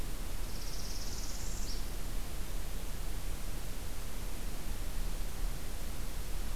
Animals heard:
Northern Parula (Setophaga americana)

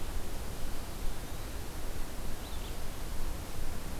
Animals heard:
Eastern Wood-Pewee (Contopus virens)

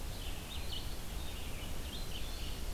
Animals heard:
Red-eyed Vireo (Vireo olivaceus)

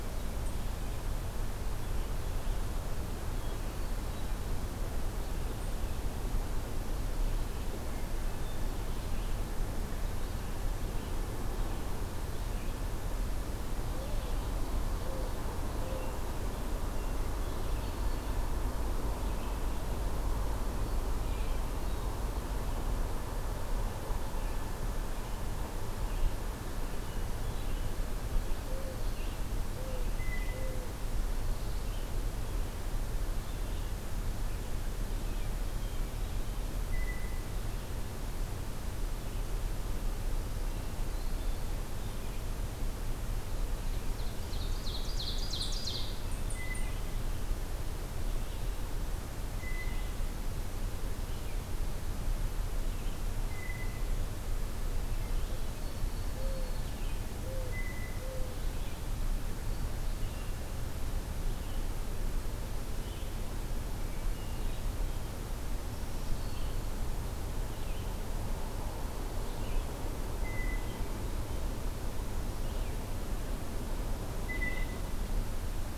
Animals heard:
Black-throated Green Warbler (Setophaga virens), Hermit Thrush (Catharus guttatus), Red-eyed Vireo (Vireo olivaceus), Ovenbird (Seiurus aurocapilla), Mourning Dove (Zenaida macroura), Blue Jay (Cyanocitta cristata)

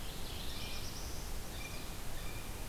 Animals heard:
Black-throated Blue Warbler (Setophaga caerulescens), Blue Jay (Cyanocitta cristata), Mourning Warbler (Geothlypis philadelphia)

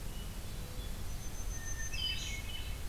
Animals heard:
Hermit Thrush (Catharus guttatus), Black-throated Green Warbler (Setophaga virens)

